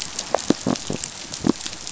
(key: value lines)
label: biophony
recorder: SoundTrap 500